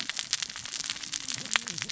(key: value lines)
label: biophony, cascading saw
recorder: SoundTrap 600 or HydroMoth